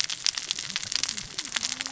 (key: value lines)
label: biophony, cascading saw
recorder: SoundTrap 600 or HydroMoth